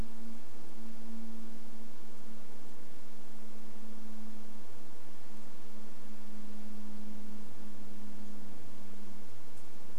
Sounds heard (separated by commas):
airplane